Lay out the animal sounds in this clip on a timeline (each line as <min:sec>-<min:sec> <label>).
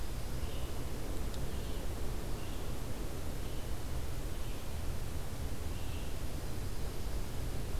0:00.0-0:00.8 Dark-eyed Junco (Junco hyemalis)
0:00.0-0:06.3 Red-eyed Vireo (Vireo olivaceus)
0:06.0-0:07.6 Dark-eyed Junco (Junco hyemalis)